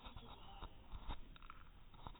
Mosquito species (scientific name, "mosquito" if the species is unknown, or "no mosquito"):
no mosquito